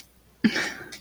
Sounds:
Sniff